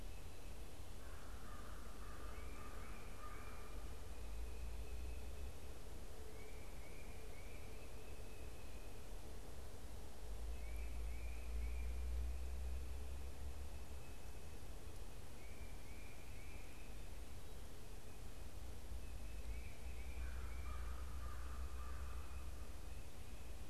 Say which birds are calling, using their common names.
American Crow, Tufted Titmouse